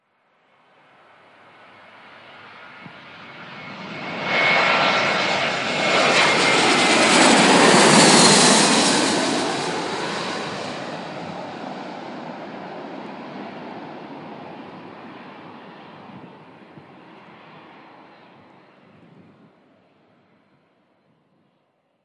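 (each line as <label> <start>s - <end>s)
An airplane passes by very close and fast. 0.0s - 22.0s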